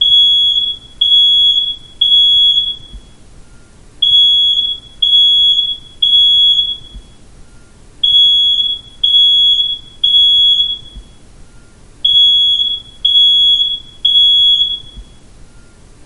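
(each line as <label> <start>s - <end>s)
A smoke alarm beeps loudly in a repeating pattern. 0.0s - 3.2s
A smoke alarm beeps loudly in a repeating pattern. 4.0s - 7.4s
A smoke alarm beeps loudly in a repeating pattern. 8.0s - 11.3s
A smoke alarm beeps loudly in a repeating pattern. 12.0s - 15.4s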